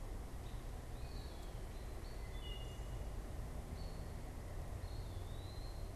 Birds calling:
American Robin (Turdus migratorius)
Wood Thrush (Hylocichla mustelina)

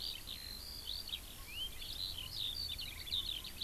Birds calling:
Eurasian Skylark (Alauda arvensis)

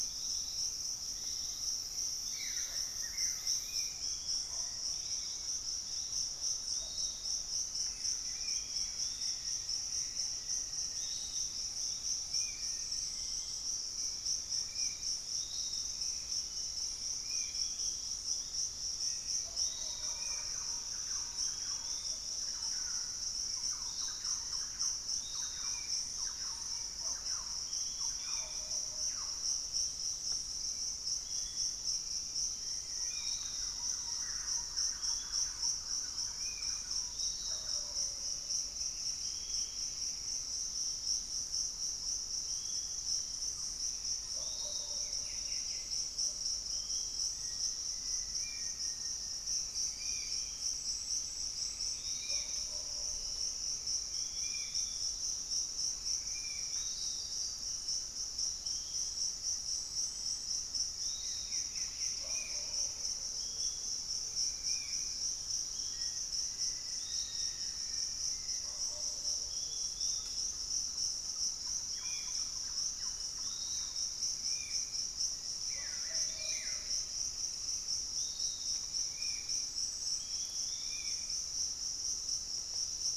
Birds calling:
Black-faced Antthrush (Formicarius analis)
Pygmy Antwren (Myrmotherula brachyura)
Black-tailed Trogon (Trogon melanurus)
Hauxwell's Thrush (Turdus hauxwelli)
Piratic Flycatcher (Legatus leucophaius)
Spot-winged Antshrike (Pygiptila stellaris)
Thrush-like Wren (Campylorhynchus turdinus)
unidentified bird
Buff-throated Woodcreeper (Xiphorhynchus guttatus)

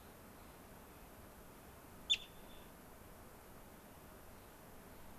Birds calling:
Clark's Nutcracker (Nucifraga columbiana)

